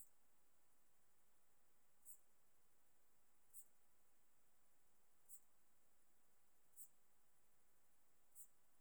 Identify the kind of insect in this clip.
orthopteran